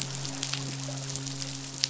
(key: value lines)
label: biophony, midshipman
recorder: SoundTrap 500